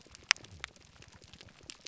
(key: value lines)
label: biophony
recorder: SoundTrap 300